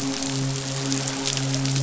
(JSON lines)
{"label": "biophony, midshipman", "recorder": "SoundTrap 500"}